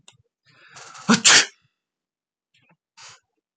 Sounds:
Sneeze